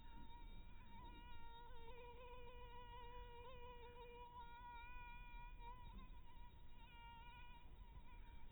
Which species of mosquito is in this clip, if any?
mosquito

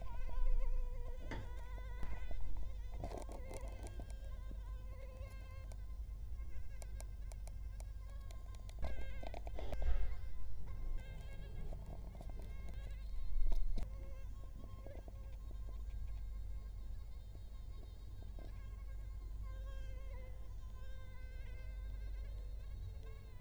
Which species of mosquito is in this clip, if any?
Culex quinquefasciatus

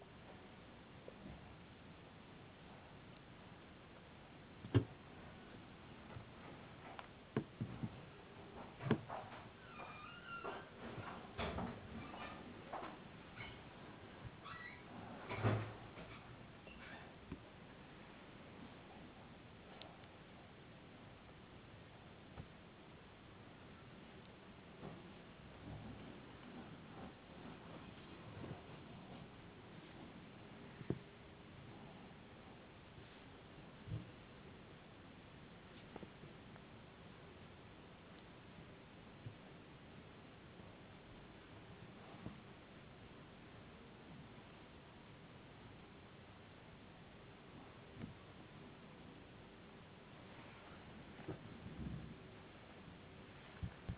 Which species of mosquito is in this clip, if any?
no mosquito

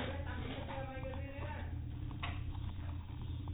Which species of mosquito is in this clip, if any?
no mosquito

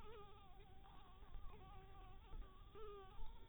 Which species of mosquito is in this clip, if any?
Anopheles harrisoni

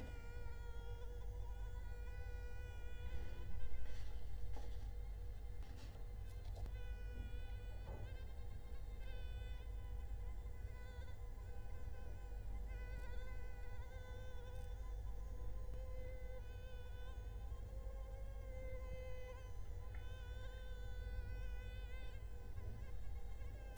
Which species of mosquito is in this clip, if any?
Culex quinquefasciatus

